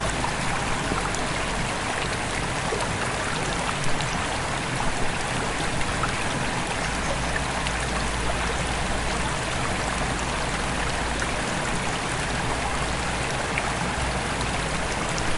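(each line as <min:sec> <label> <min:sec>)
0:00.0 Water flowing calmly and continuously nearby. 0:15.4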